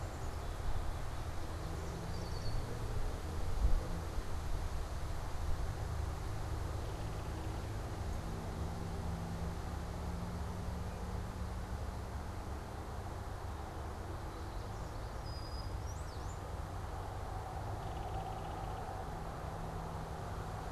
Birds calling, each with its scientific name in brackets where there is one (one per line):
Belted Kingfisher (Megaceryle alcyon)
Red-winged Blackbird (Agelaius phoeniceus)
Brown-headed Cowbird (Molothrus ater)
Black-capped Chickadee (Poecile atricapillus)